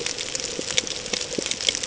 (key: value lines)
label: ambient
recorder: HydroMoth